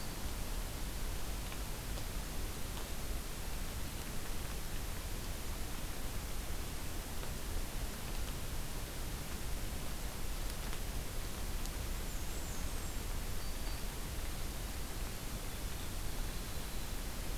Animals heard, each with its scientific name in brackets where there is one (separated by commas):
Black-and-white Warbler (Mniotilta varia)